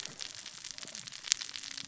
{"label": "biophony, cascading saw", "recorder": "SoundTrap 600 or HydroMoth"}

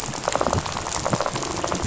{"label": "biophony, rattle", "recorder": "SoundTrap 500"}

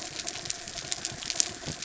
{"label": "biophony", "recorder": "SoundTrap 300"}
{"label": "anthrophony, mechanical", "recorder": "SoundTrap 300"}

